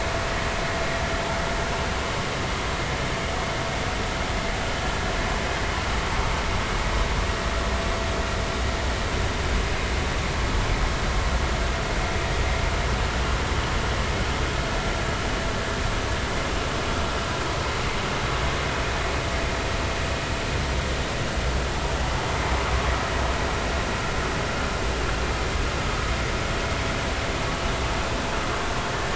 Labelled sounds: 28.9	29.1	vessel noise, 1.7 to 1.9 kHz

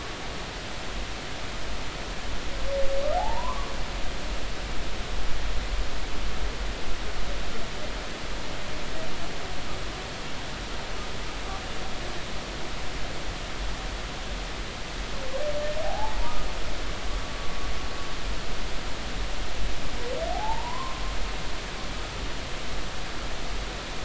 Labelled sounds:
3.2	3.7	humpback whale, 0.80 to 1.2 kHz
15.8	16.2	humpback whale, 0.80 to 0.93 kHz
20.3	21.0	humpback whale, 0.80 to 1.2 kHz

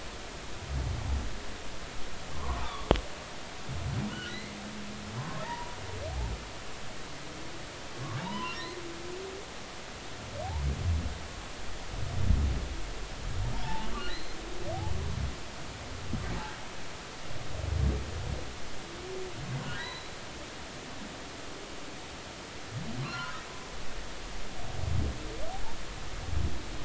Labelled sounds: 2.3	2.9	humpback whale, 0.83 to 3.8 kHz
4.1	4.6	humpback whale, 1.3 to 3.1 kHz
5.2	5.8	humpback whale, 0.86 to 1.1 kHz
8.2	8.6	humpback whale, 0.83 to 3.1 kHz
13.6	14.4	humpback whale, 0.80 to 4.2 kHz
19.7	20.1	humpback whale, 1.8 to 4.1 kHz
23.0	23.4	humpback whale, 0.96 to 4.4 kHz

